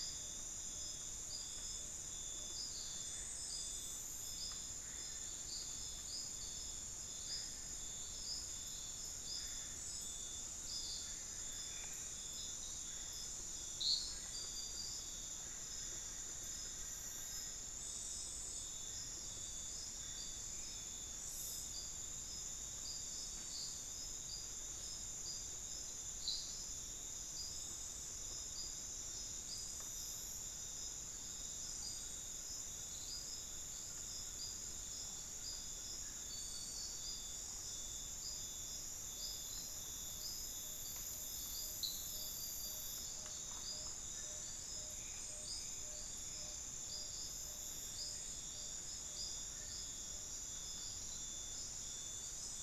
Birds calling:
Solitary Black Cacique (Cacicus solitarius), Ferruginous Pygmy-Owl (Glaucidium brasilianum), Tawny-bellied Screech-Owl (Megascops watsonii), unidentified bird

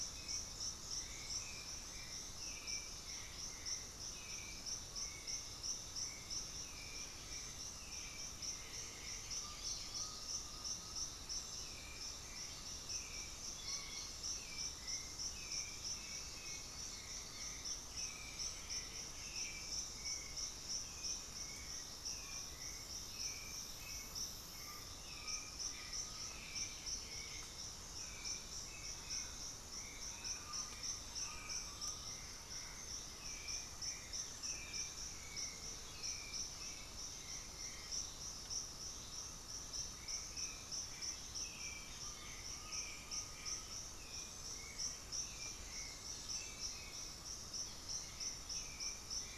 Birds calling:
unidentified bird, Black-throated Antbird (Myrmophylax atrothorax), White-winged Becard (Pachyramphus polychopterus), Hauxwell's Thrush (Turdus hauxwelli), Undulated Tinamou (Crypturellus undulatus), Chestnut-winged Foliage-gleaner (Dendroma erythroptera), Russet-backed Oropendola (Psarocolius angustifrons), Buff-throated Woodcreeper (Xiphorhynchus guttatus)

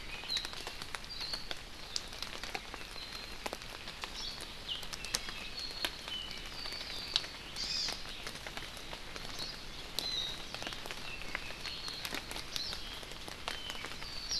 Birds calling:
Hawaii Akepa (Loxops coccineus), Apapane (Himatione sanguinea), Hawaii Amakihi (Chlorodrepanis virens)

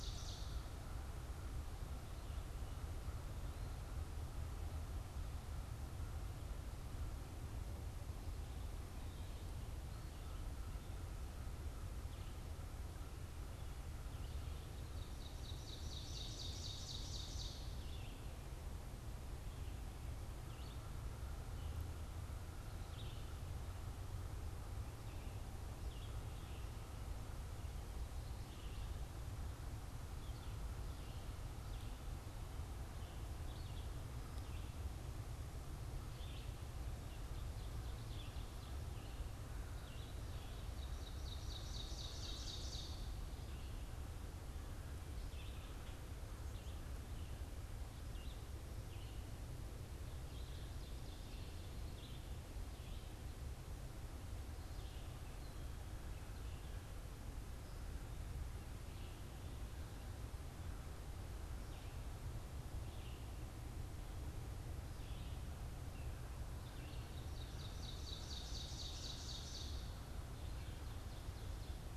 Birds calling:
Red-eyed Vireo (Vireo olivaceus), American Crow (Corvus brachyrhynchos), Ovenbird (Seiurus aurocapilla)

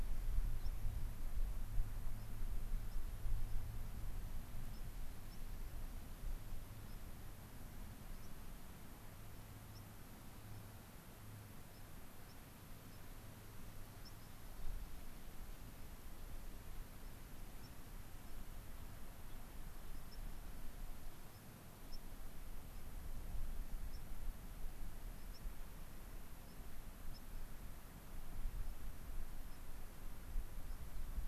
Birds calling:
White-crowned Sparrow (Zonotrichia leucophrys), Gray-crowned Rosy-Finch (Leucosticte tephrocotis)

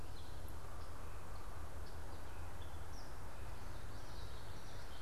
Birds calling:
Gray Catbird (Dumetella carolinensis)

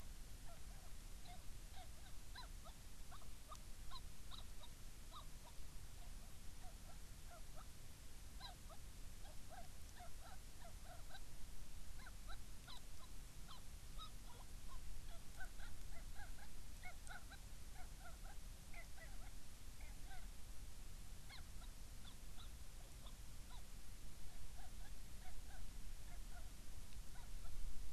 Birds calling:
Hawaiian Petrel (Pterodroma sandwichensis)

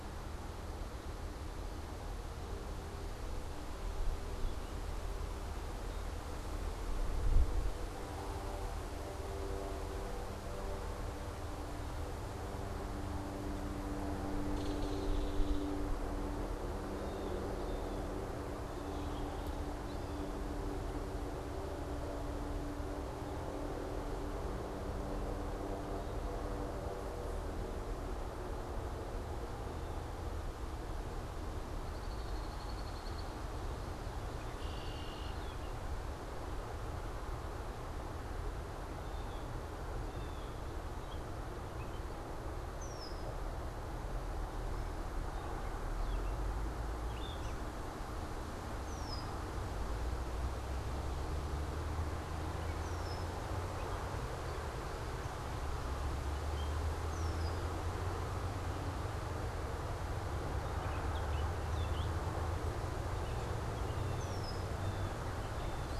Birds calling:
Belted Kingfisher (Megaceryle alcyon), Red-winged Blackbird (Agelaius phoeniceus), Blue Jay (Cyanocitta cristata), Gray Catbird (Dumetella carolinensis)

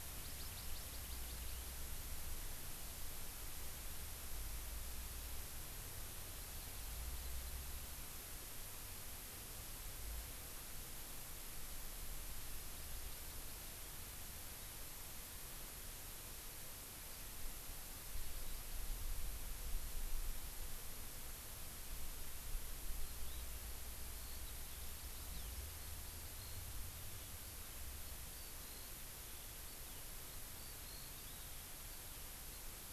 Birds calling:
Eurasian Skylark (Alauda arvensis), Hawaii Amakihi (Chlorodrepanis virens)

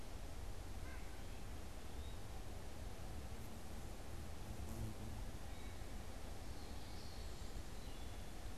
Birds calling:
Eastern Wood-Pewee (Contopus virens), White-breasted Nuthatch (Sitta carolinensis), Wood Thrush (Hylocichla mustelina), Common Yellowthroat (Geothlypis trichas)

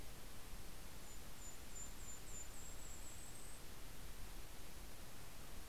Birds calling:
Mountain Chickadee (Poecile gambeli), Red-breasted Nuthatch (Sitta canadensis)

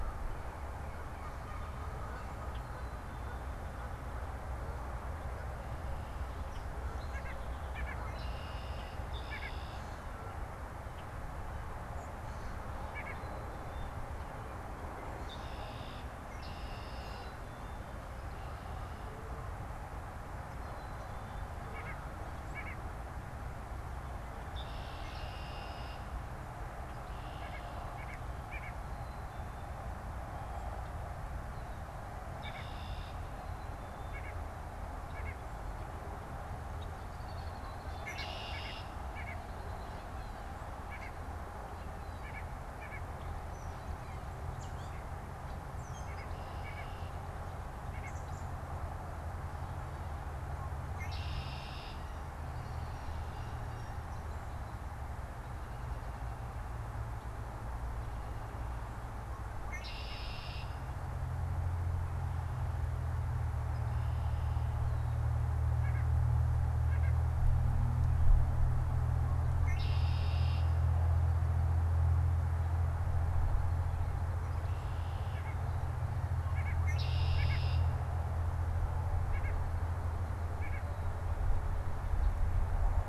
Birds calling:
Common Grackle (Quiscalus quiscula), Red-winged Blackbird (Agelaius phoeniceus), Blue Jay (Cyanocitta cristata), Black-capped Chickadee (Poecile atricapillus), Gray Catbird (Dumetella carolinensis), White-breasted Nuthatch (Sitta carolinensis)

